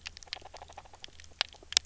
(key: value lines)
label: biophony, grazing
recorder: SoundTrap 300